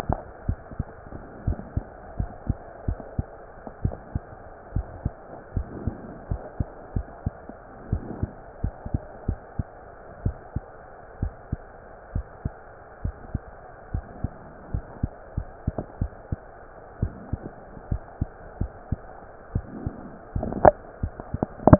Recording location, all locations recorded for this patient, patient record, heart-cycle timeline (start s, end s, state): mitral valve (MV)
aortic valve (AV)+pulmonary valve (PV)+tricuspid valve (TV)+mitral valve (MV)
#Age: Child
#Sex: Male
#Height: 124.0 cm
#Weight: 29.6 kg
#Pregnancy status: False
#Murmur: Absent
#Murmur locations: nan
#Most audible location: nan
#Systolic murmur timing: nan
#Systolic murmur shape: nan
#Systolic murmur grading: nan
#Systolic murmur pitch: nan
#Systolic murmur quality: nan
#Diastolic murmur timing: nan
#Diastolic murmur shape: nan
#Diastolic murmur grading: nan
#Diastolic murmur pitch: nan
#Diastolic murmur quality: nan
#Outcome: Normal
#Campaign: 2015 screening campaign
0.00	0.16	unannotated
0.16	0.17	S1
0.17	0.44	systole
0.44	0.60	S1
0.60	0.76	systole
0.76	0.85	S2
0.85	1.46	diastole
1.46	1.57	S1
1.57	1.76	systole
1.76	1.81	S2
1.81	2.14	diastole
2.14	2.28	S1
2.28	2.47	systole
2.47	2.56	S2
2.56	2.86	diastole
2.86	3.00	S1
3.00	3.14	systole
3.14	3.28	S2
3.28	3.82	diastole
3.82	3.98	S1
3.98	4.13	systole
4.13	4.24	S2
4.24	4.73	diastole
4.73	4.88	S1
4.88	5.02	systole
5.02	5.14	S2
5.14	5.54	diastole
5.54	5.65	S1
5.65	5.82	systole
5.82	6.00	S2
6.00	6.26	diastole
6.26	6.42	S1
6.42	6.58	systole
6.58	6.65	S2
6.65	6.94	diastole
6.94	7.08	S1
7.08	7.22	systole
7.22	7.36	S2
7.36	7.90	diastole
7.90	8.04	S1
8.04	8.20	systole
8.20	8.34	S2
8.34	8.62	diastole
8.62	8.72	S1
8.72	8.90	systole
8.90	9.04	S2
9.04	9.27	diastole
9.27	9.39	S1
9.39	9.56	systole
9.56	9.63	S2
9.63	10.18	diastole
10.18	10.34	S1
10.34	10.52	systole
10.52	10.66	S2
10.66	11.20	diastole
11.20	11.34	S1
11.34	11.48	systole
11.48	11.62	S2
11.62	12.14	diastole
12.14	12.26	S1
12.26	12.42	systole
12.42	12.52	S2
12.52	13.02	diastole
13.02	13.16	S1
13.16	13.32	systole
13.32	13.44	S2
13.44	13.90	diastole
13.90	14.04	S1
14.04	14.20	systole
14.20	14.34	S2
14.34	14.73	diastole
14.73	14.82	S1
14.82	15.00	systole
15.00	15.14	S2
15.14	15.34	diastole
15.34	15.48	S1
15.48	15.65	systole
15.65	15.73	S2
15.73	15.98	diastole
15.98	16.12	S1
16.12	16.28	systole
16.28	16.42	S2
16.42	17.00	diastole
17.00	17.14	S1
17.14	17.30	systole
17.30	17.40	S2
17.40	17.88	diastole
17.88	18.02	S1
18.02	18.18	systole
18.18	18.28	S2
18.28	18.58	diastole
18.58	18.72	S1
18.72	18.88	systole
18.88	19.02	S2
19.02	19.52	diastole
19.52	19.66	S1
19.66	19.82	systole
19.82	19.94	S2
19.94	20.01	diastole
20.01	21.79	unannotated